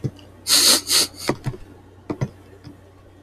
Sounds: Sniff